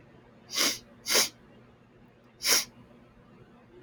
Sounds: Sniff